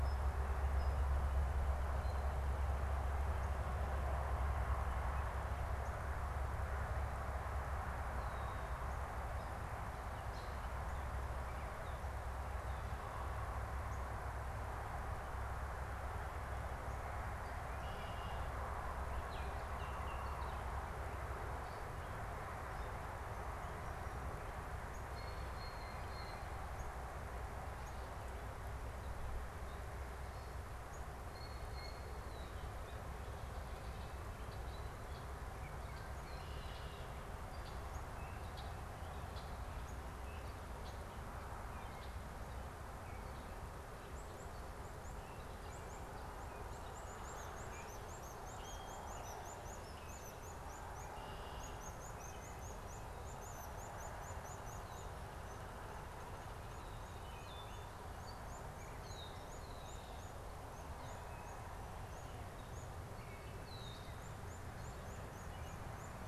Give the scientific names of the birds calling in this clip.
Colaptes auratus, Agelaius phoeniceus, Icterus galbula, Cyanocitta cristata, unidentified bird, Hylocichla mustelina